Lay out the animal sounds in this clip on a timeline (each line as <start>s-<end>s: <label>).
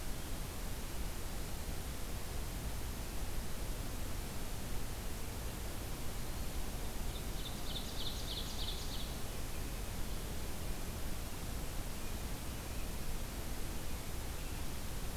7.0s-9.2s: Ovenbird (Seiurus aurocapilla)